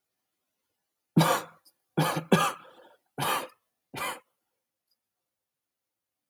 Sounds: Cough